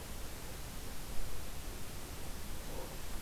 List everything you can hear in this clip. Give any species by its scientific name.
forest ambience